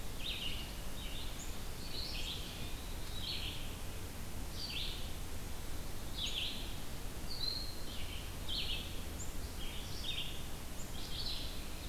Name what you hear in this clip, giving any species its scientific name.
Vireo olivaceus, Contopus virens